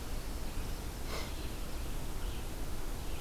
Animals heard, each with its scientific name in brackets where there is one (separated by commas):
Red-eyed Vireo (Vireo olivaceus)